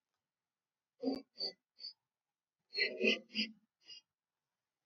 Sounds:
Sniff